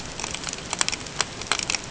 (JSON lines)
{"label": "ambient", "recorder": "HydroMoth"}